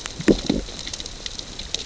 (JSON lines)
{"label": "biophony, growl", "recorder": "SoundTrap 600 or HydroMoth"}